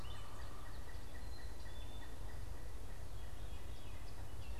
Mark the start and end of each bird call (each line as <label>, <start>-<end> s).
American Goldfinch (Spinus tristis), 0.0-4.6 s
Gray Catbird (Dumetella carolinensis), 0.0-4.6 s
Pileated Woodpecker (Dryocopus pileatus), 0.0-4.6 s
Black-capped Chickadee (Poecile atricapillus), 1.1-4.6 s